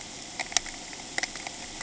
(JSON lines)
{"label": "ambient", "recorder": "HydroMoth"}